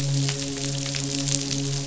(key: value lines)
label: biophony, midshipman
recorder: SoundTrap 500